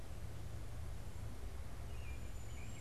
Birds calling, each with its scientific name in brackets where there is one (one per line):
American Robin (Turdus migratorius)
Cedar Waxwing (Bombycilla cedrorum)